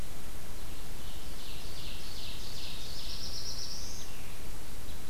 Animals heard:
Black-throated Blue Warbler (Setophaga caerulescens), Ovenbird (Seiurus aurocapilla)

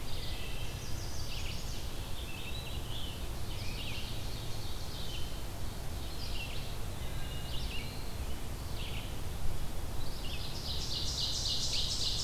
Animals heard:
Red-eyed Vireo (Vireo olivaceus), Scarlet Tanager (Piranga olivacea), Wood Thrush (Hylocichla mustelina), Chestnut-sided Warbler (Setophaga pensylvanica), Black-throated Blue Warbler (Setophaga caerulescens), Ovenbird (Seiurus aurocapilla)

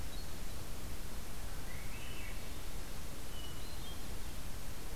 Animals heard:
Swainson's Thrush (Catharus ustulatus), Hermit Thrush (Catharus guttatus)

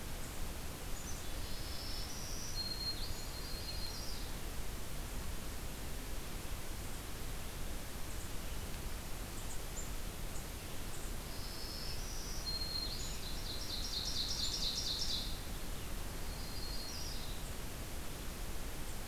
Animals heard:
Yellow-rumped Warbler (Setophaga coronata), Black-capped Chickadee (Poecile atricapillus), Ovenbird (Seiurus aurocapilla), Black-throated Green Warbler (Setophaga virens)

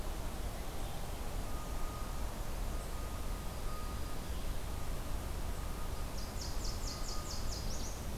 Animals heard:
Black-throated Green Warbler (Setophaga virens), Nashville Warbler (Leiothlypis ruficapilla)

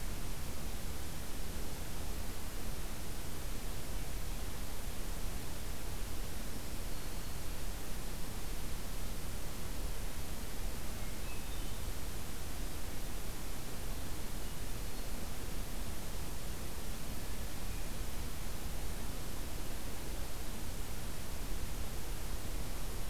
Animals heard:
Black-throated Green Warbler (Setophaga virens), Hermit Thrush (Catharus guttatus)

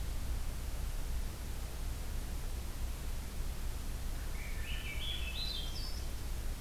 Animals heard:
Swainson's Thrush (Catharus ustulatus)

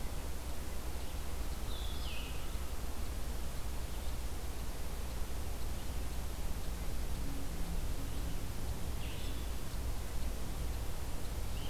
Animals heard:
Blue-headed Vireo (Vireo solitarius)

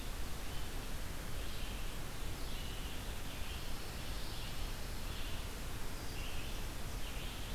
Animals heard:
Red-eyed Vireo (Vireo olivaceus), Pine Warbler (Setophaga pinus)

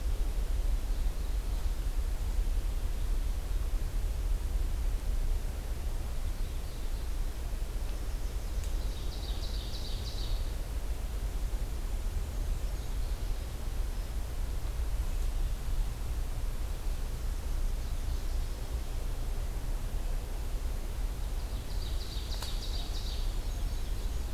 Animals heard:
Black-and-white Warbler (Mniotilta varia), Ovenbird (Seiurus aurocapilla), Yellow-rumped Warbler (Setophaga coronata)

